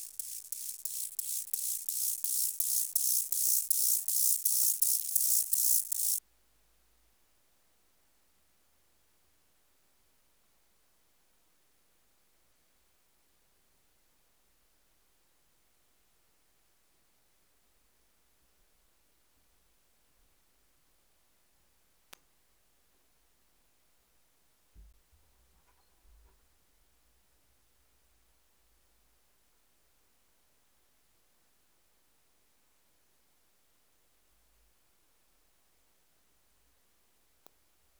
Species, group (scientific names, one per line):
Chorthippus mollis
Orthoptera